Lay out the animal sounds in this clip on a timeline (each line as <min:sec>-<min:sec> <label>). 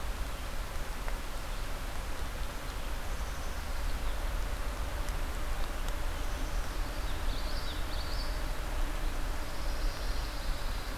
0:03.0-0:03.7 Black-capped Chickadee (Poecile atricapillus)
0:06.1-0:07.0 Black-capped Chickadee (Poecile atricapillus)
0:07.1-0:08.7 Common Yellowthroat (Geothlypis trichas)
0:09.3-0:11.0 Pine Warbler (Setophaga pinus)